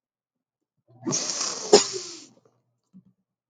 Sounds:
Sniff